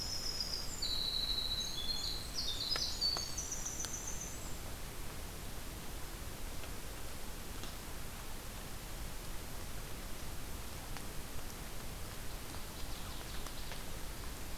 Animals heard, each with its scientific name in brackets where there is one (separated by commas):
Northern Waterthrush (Parkesia noveboracensis), Winter Wren (Troglodytes hiemalis)